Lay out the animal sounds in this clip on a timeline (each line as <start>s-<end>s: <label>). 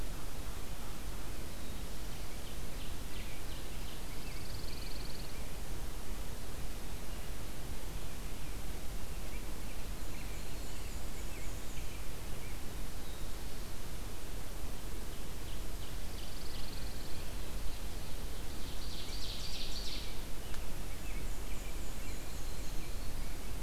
2.1s-4.3s: Ovenbird (Seiurus aurocapilla)
4.1s-5.4s: Pine Warbler (Setophaga pinus)
8.9s-12.7s: American Robin (Turdus migratorius)
9.9s-11.9s: Black-and-white Warbler (Mniotilta varia)
15.0s-16.8s: Ovenbird (Seiurus aurocapilla)
15.9s-17.3s: Pine Warbler (Setophaga pinus)
17.1s-20.1s: Ovenbird (Seiurus aurocapilla)
19.9s-23.6s: American Robin (Turdus migratorius)
21.0s-22.9s: Black-and-white Warbler (Mniotilta varia)
21.9s-23.4s: Yellow-rumped Warbler (Setophaga coronata)